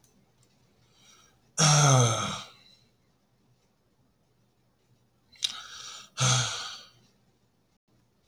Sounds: Sigh